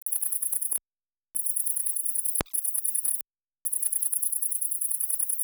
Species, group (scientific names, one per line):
Tettigonia viridissima
Orthoptera